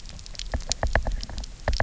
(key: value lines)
label: biophony, knock
recorder: SoundTrap 300